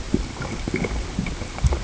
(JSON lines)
{"label": "ambient", "recorder": "HydroMoth"}